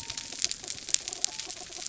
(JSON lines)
{"label": "biophony", "recorder": "SoundTrap 300"}